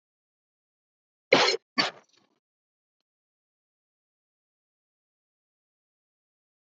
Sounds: Cough